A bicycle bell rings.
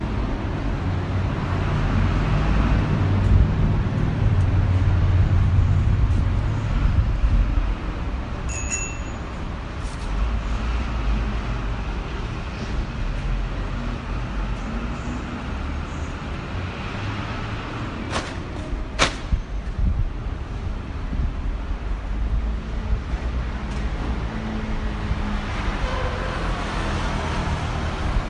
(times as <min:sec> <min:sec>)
0:08.0 0:09.5